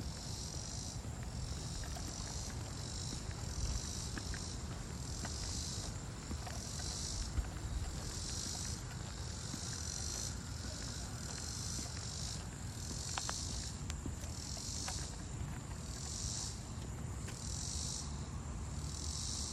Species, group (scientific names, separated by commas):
Neotibicen robinsonianus, Cicadidae